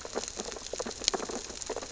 {"label": "biophony, sea urchins (Echinidae)", "recorder": "SoundTrap 600 or HydroMoth"}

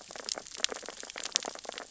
{"label": "biophony, sea urchins (Echinidae)", "recorder": "SoundTrap 600 or HydroMoth"}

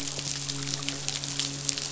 {"label": "biophony, midshipman", "recorder": "SoundTrap 500"}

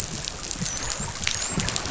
{"label": "biophony, dolphin", "recorder": "SoundTrap 500"}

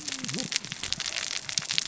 {"label": "biophony, cascading saw", "recorder": "SoundTrap 600 or HydroMoth"}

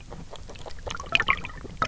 {"label": "biophony, grazing", "recorder": "SoundTrap 300"}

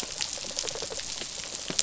{"label": "biophony, rattle response", "recorder": "SoundTrap 500"}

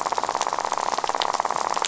{"label": "biophony, rattle", "recorder": "SoundTrap 500"}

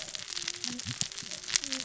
{"label": "biophony, cascading saw", "recorder": "SoundTrap 600 or HydroMoth"}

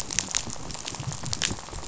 {"label": "biophony, rattle", "recorder": "SoundTrap 500"}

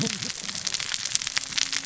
{"label": "biophony, cascading saw", "recorder": "SoundTrap 600 or HydroMoth"}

